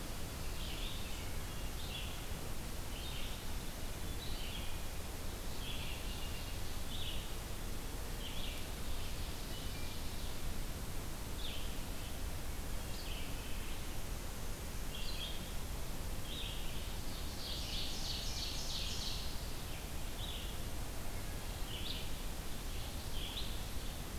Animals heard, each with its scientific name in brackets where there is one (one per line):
American Robin (Turdus migratorius)
Ovenbird (Seiurus aurocapilla)
Black-capped Chickadee (Poecile atricapillus)
Red-eyed Vireo (Vireo olivaceus)
Wood Thrush (Hylocichla mustelina)